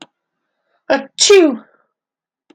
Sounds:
Sneeze